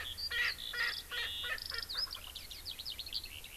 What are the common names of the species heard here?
Erckel's Francolin, Eurasian Skylark